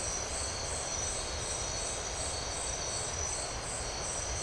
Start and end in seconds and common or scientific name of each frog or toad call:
none